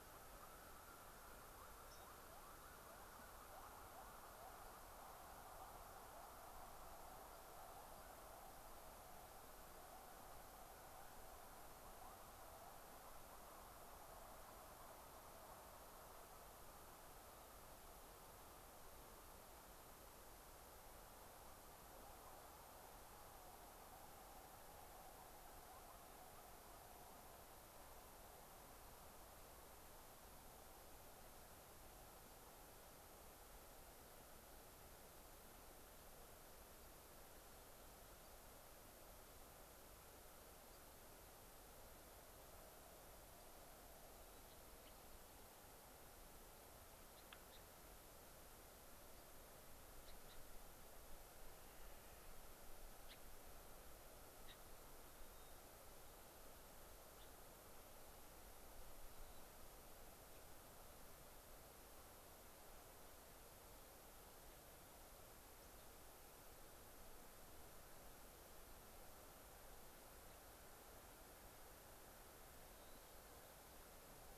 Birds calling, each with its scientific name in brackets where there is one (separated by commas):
Clark's Nutcracker (Nucifraga columbiana), Gray-crowned Rosy-Finch (Leucosticte tephrocotis), White-crowned Sparrow (Zonotrichia leucophrys)